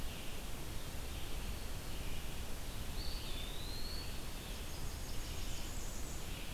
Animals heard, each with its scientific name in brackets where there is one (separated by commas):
Blackburnian Warbler (Setophaga fusca), Eastern Wood-Pewee (Contopus virens), Red-eyed Vireo (Vireo olivaceus)